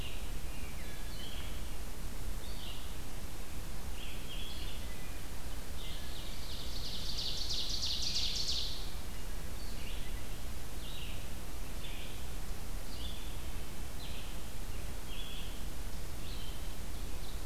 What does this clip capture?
Red-eyed Vireo, Ovenbird